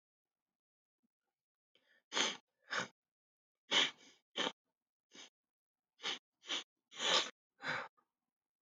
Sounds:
Sniff